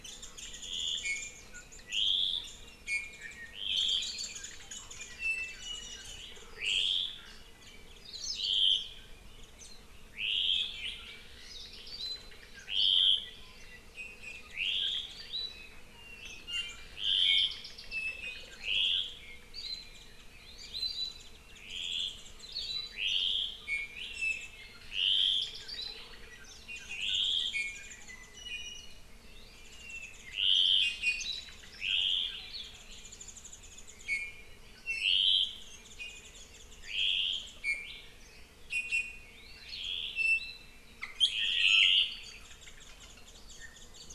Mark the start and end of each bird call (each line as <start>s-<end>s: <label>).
0.0s-1.3s: Warbling White-eye (Zosterops japonicus)
1.0s-1.5s: Apapane (Himatione sanguinea)
2.8s-3.6s: Apapane (Himatione sanguinea)
3.7s-5.1s: Warbling White-eye (Zosterops japonicus)
5.2s-6.1s: Apapane (Himatione sanguinea)
13.9s-14.4s: Apapane (Himatione sanguinea)
16.5s-16.9s: Apapane (Himatione sanguinea)
17.9s-18.5s: Apapane (Himatione sanguinea)
23.7s-24.6s: Apapane (Himatione sanguinea)
27.5s-29.0s: Apapane (Himatione sanguinea)
29.6s-30.5s: Warbling White-eye (Zosterops japonicus)
30.8s-31.4s: Apapane (Himatione sanguinea)
32.6s-34.0s: Warbling White-eye (Zosterops japonicus)
34.0s-34.4s: Apapane (Himatione sanguinea)
34.9s-35.2s: Apapane (Himatione sanguinea)
35.9s-36.2s: Apapane (Himatione sanguinea)
37.6s-38.1s: Apapane (Himatione sanguinea)
38.7s-39.3s: Apapane (Himatione sanguinea)
40.1s-40.8s: Apapane (Himatione sanguinea)
41.4s-42.0s: Apapane (Himatione sanguinea)
42.4s-44.1s: Warbling White-eye (Zosterops japonicus)